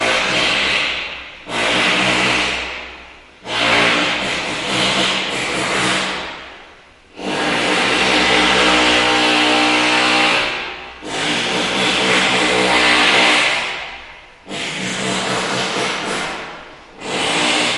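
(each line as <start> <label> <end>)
0.0 The sound of drilling. 3.3
3.4 Drilling into drywall. 6.6
7.2 A continuous drilling noise. 14.2
14.3 A steady, high-pitched whirring sound of a drill. 17.8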